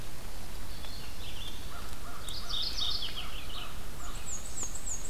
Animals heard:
Mourning Warbler (Geothlypis philadelphia), Black-and-white Warbler (Mniotilta varia), American Crow (Corvus brachyrhynchos), Red-eyed Vireo (Vireo olivaceus)

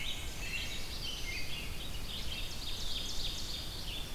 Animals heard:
American Robin (Turdus migratorius), Black-and-white Warbler (Mniotilta varia), Black-throated Blue Warbler (Setophaga caerulescens), Red-eyed Vireo (Vireo olivaceus), Ovenbird (Seiurus aurocapilla)

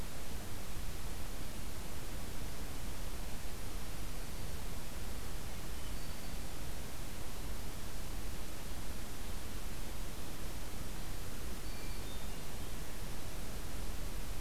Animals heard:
Hermit Thrush (Catharus guttatus), Black-throated Green Warbler (Setophaga virens)

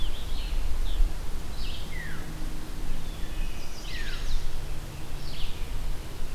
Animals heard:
Scarlet Tanager (Piranga olivacea), Wood Thrush (Hylocichla mustelina), Veery (Catharus fuscescens), Red-eyed Vireo (Vireo olivaceus), Chestnut-sided Warbler (Setophaga pensylvanica)

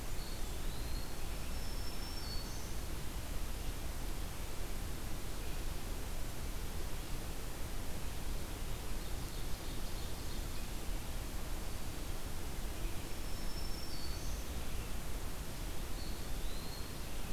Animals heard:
Black-throated Green Warbler (Setophaga virens), Ovenbird (Seiurus aurocapilla), Eastern Wood-Pewee (Contopus virens)

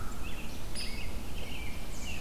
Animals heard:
Hairy Woodpecker (Dryobates villosus), American Robin (Turdus migratorius)

